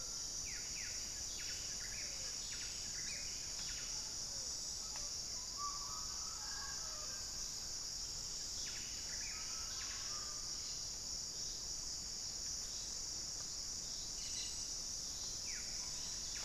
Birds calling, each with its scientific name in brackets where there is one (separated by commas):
Cobalt-winged Parakeet (Brotogeris cyanoptera), Mealy Parrot (Amazona farinosa), Pale-vented Pigeon (Patagioenas cayennensis), Buff-breasted Wren (Cantorchilus leucotis)